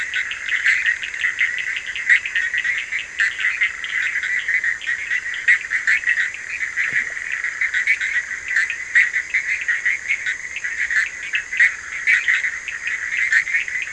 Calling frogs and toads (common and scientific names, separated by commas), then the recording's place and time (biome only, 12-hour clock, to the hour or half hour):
Bischoff's tree frog (Boana bischoffi), Cochran's lime tree frog (Sphaenorhynchus surdus)
Atlantic Forest, 2am